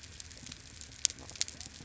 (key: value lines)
label: biophony
recorder: SoundTrap 300